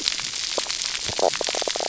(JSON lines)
{"label": "biophony, knock croak", "recorder": "SoundTrap 300"}